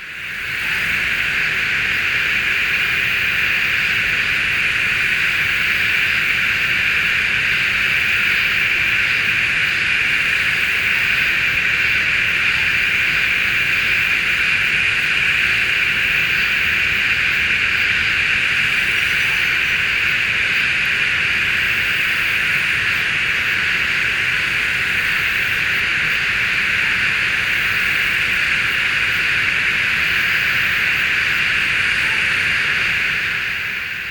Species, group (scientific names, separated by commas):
Psaltoda moerens, Cicadidae